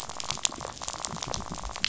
{"label": "biophony, rattle", "recorder": "SoundTrap 500"}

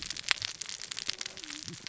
{"label": "biophony, cascading saw", "recorder": "SoundTrap 600 or HydroMoth"}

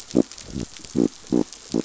{"label": "biophony", "recorder": "SoundTrap 500"}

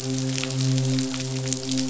{"label": "biophony, midshipman", "recorder": "SoundTrap 500"}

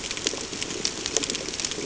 {"label": "ambient", "recorder": "HydroMoth"}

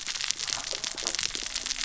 {"label": "biophony, cascading saw", "recorder": "SoundTrap 600 or HydroMoth"}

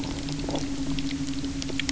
{"label": "anthrophony, boat engine", "recorder": "SoundTrap 300"}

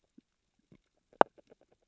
{"label": "biophony, grazing", "recorder": "SoundTrap 600 or HydroMoth"}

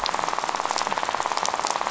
{"label": "biophony, rattle", "recorder": "SoundTrap 500"}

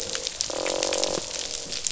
{"label": "biophony, croak", "recorder": "SoundTrap 500"}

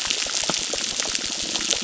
{"label": "biophony, crackle", "recorder": "SoundTrap 600"}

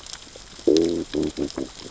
{"label": "biophony, growl", "recorder": "SoundTrap 600 or HydroMoth"}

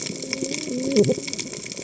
{"label": "biophony, cascading saw", "recorder": "HydroMoth"}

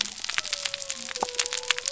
{"label": "biophony", "recorder": "SoundTrap 300"}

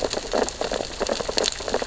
{"label": "biophony, sea urchins (Echinidae)", "recorder": "SoundTrap 600 or HydroMoth"}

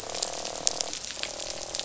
{"label": "biophony, croak", "recorder": "SoundTrap 500"}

